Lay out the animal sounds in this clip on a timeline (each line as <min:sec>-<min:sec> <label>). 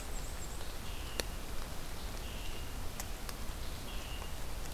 0:00.0-0:00.6 Black-and-white Warbler (Mniotilta varia)
0:00.0-0:04.7 Scarlet Tanager (Piranga olivacea)